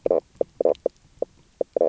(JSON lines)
{"label": "biophony, knock croak", "recorder": "SoundTrap 300"}